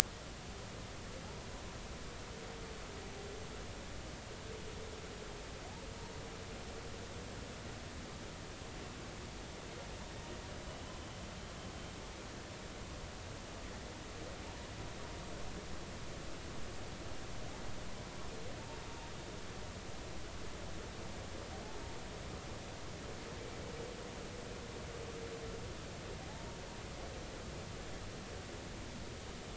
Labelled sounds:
26.3	26.6	humpback whale, 0.80 to 0.96 kHz

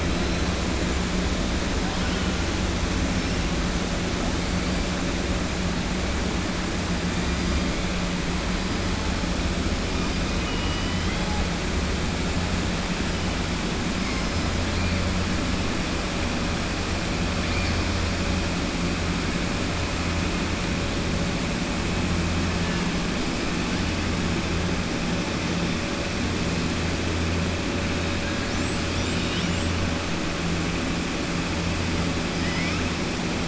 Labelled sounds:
10.3	11.2	killer whale, southern resident, 1.9 to 3.2 kHz
32.3	32.8	killer whale, southern resident, 1.3 to 3.1 kHz

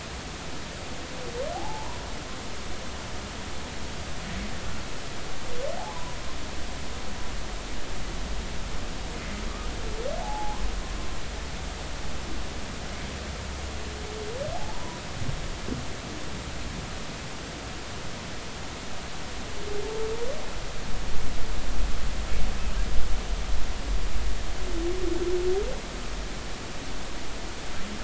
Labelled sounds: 1.5	2.0	humpback whale, 0.80 to 1.1 kHz
5.8	6.2	humpback whale, 0.80 to 1.1 kHz
10.2	10.6	humpback whale, 0.80 to 1.1 kHz
14.5	15.0	humpback whale, 0.80 to 1.1 kHz

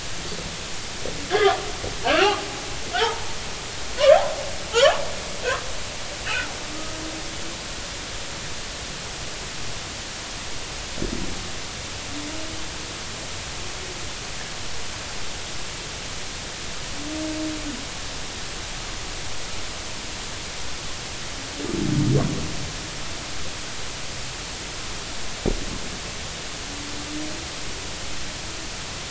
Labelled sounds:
2.0	2.4	humpback whale, 2.4 to 2.9 kHz
2.9	3.4	humpback whale, 0.80 to 1.6 kHz

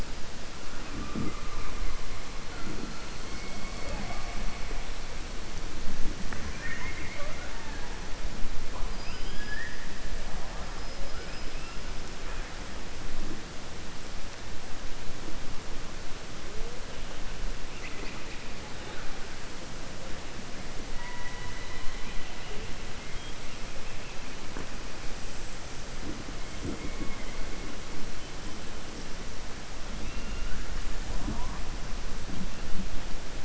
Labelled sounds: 8.8	9.8	killer whale, southern resident, 1.6 to 5.0 kHz
30.0	30.6	killer whale, southern resident, 1.4 to 3.7 kHz

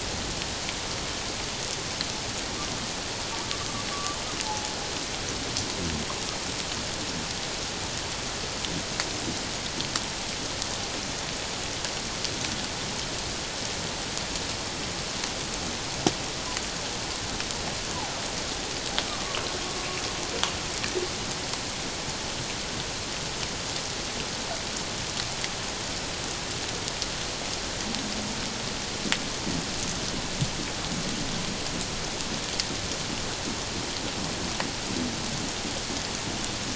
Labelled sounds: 3.9	4.2	humpback whale, 1.1 to 1.2 kHz
19.1	19.4	humpback whale, 1.0 to 1.3 kHz

